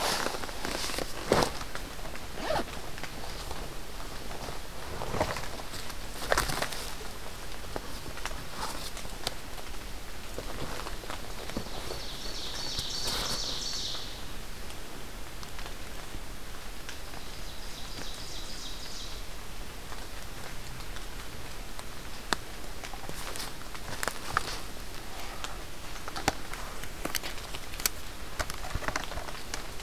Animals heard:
Scarlet Tanager (Piranga olivacea), Ovenbird (Seiurus aurocapilla)

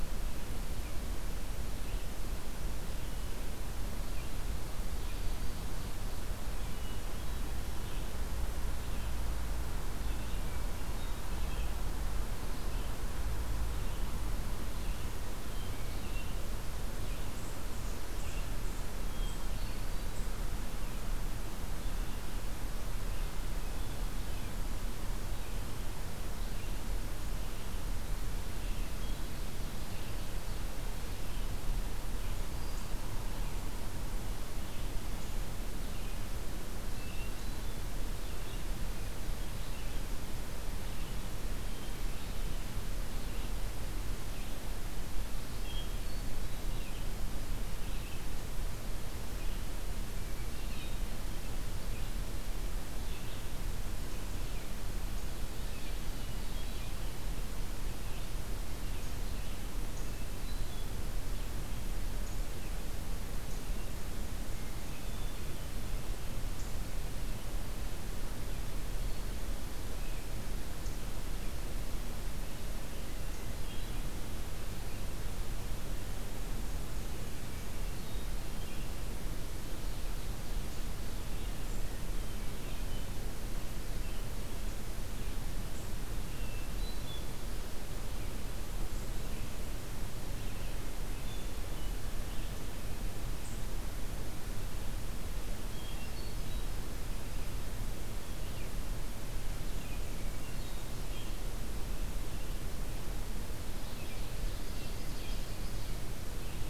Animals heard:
Ovenbird (Seiurus aurocapilla), Red-eyed Vireo (Vireo olivaceus), Hermit Thrush (Catharus guttatus), Black-capped Chickadee (Poecile atricapillus)

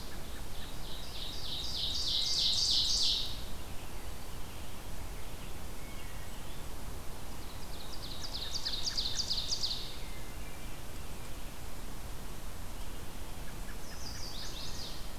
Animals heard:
Chestnut-sided Warbler (Setophaga pensylvanica), Ovenbird (Seiurus aurocapilla), Wood Thrush (Hylocichla mustelina), American Robin (Turdus migratorius), Red-eyed Vireo (Vireo olivaceus)

